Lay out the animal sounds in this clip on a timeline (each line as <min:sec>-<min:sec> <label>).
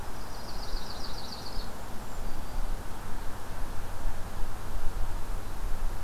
0:00.0-0:01.7 Yellow-rumped Warbler (Setophaga coronata)
0:01.7-0:02.3 Golden-crowned Kinglet (Regulus satrapa)
0:02.2-0:02.8 Black-throated Green Warbler (Setophaga virens)